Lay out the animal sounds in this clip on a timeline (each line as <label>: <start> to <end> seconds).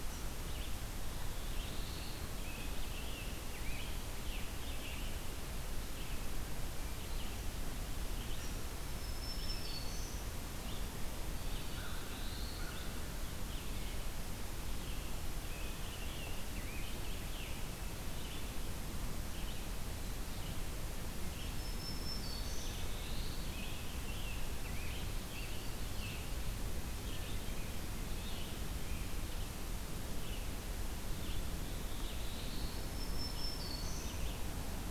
Red-eyed Vireo (Vireo olivaceus): 0.0 to 34.9 seconds
Black-throated Blue Warbler (Setophaga caerulescens): 1.1 to 2.3 seconds
Scarlet Tanager (Piranga olivacea): 2.4 to 5.2 seconds
Black-throated Green Warbler (Setophaga virens): 8.6 to 10.5 seconds
Black-throated Blue Warbler (Setophaga caerulescens): 11.4 to 12.9 seconds
Scarlet Tanager (Piranga olivacea): 14.7 to 17.7 seconds
Black-throated Green Warbler (Setophaga virens): 21.3 to 23.0 seconds
Black-throated Blue Warbler (Setophaga caerulescens): 22.1 to 23.6 seconds
Scarlet Tanager (Piranga olivacea): 22.9 to 26.3 seconds
Black-throated Blue Warbler (Setophaga caerulescens): 31.4 to 33.0 seconds
Black-throated Green Warbler (Setophaga virens): 32.3 to 34.4 seconds